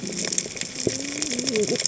{"label": "biophony, cascading saw", "recorder": "HydroMoth"}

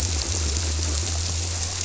{"label": "biophony", "recorder": "SoundTrap 300"}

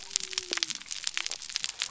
{"label": "biophony", "recorder": "SoundTrap 300"}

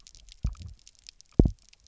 {"label": "biophony, double pulse", "recorder": "SoundTrap 300"}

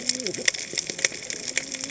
{"label": "biophony, cascading saw", "recorder": "HydroMoth"}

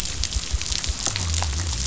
{"label": "biophony", "recorder": "SoundTrap 500"}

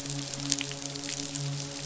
{"label": "biophony, midshipman", "recorder": "SoundTrap 500"}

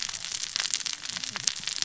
{"label": "biophony, cascading saw", "recorder": "SoundTrap 600 or HydroMoth"}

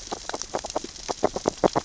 {"label": "biophony, grazing", "recorder": "SoundTrap 600 or HydroMoth"}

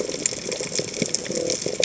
{"label": "biophony", "recorder": "HydroMoth"}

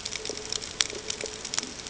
{"label": "ambient", "recorder": "HydroMoth"}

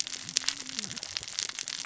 {"label": "biophony, cascading saw", "recorder": "SoundTrap 600 or HydroMoth"}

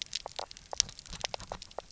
{"label": "biophony, knock croak", "recorder": "SoundTrap 300"}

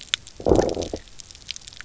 {"label": "biophony, low growl", "recorder": "SoundTrap 300"}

